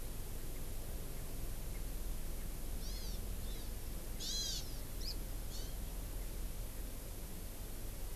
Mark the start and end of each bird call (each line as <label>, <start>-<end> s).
Hawaii Amakihi (Chlorodrepanis virens), 2.7-3.1 s
Hawaii Amakihi (Chlorodrepanis virens), 3.4-3.6 s
Hawaiian Hawk (Buteo solitarius), 4.1-4.6 s
Hawaii Amakihi (Chlorodrepanis virens), 4.9-5.1 s
Hawaii Amakihi (Chlorodrepanis virens), 5.5-5.7 s